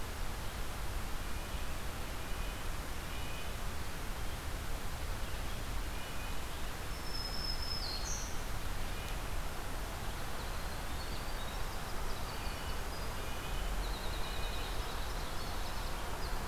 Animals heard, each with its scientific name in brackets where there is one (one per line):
Black-throated Green Warbler (Setophaga virens)
Winter Wren (Troglodytes hiemalis)
Red-breasted Nuthatch (Sitta canadensis)